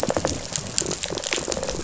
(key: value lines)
label: biophony, rattle response
recorder: SoundTrap 500